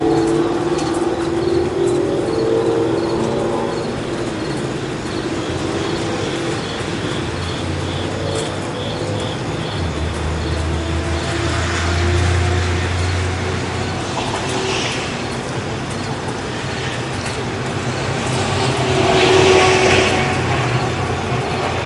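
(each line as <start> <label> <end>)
0.0 Ambient traffic on a suburban road. 21.9
0.0 Birds chirping in the background during an evening. 21.9
0.0 Heavy raindrops are falling onto a patio. 21.9
10.9 A car drives on a wet road in the suburbs. 13.7
14.0 A car drives through a puddle. 15.1
18.7 A car drives by loudly on a road. 20.4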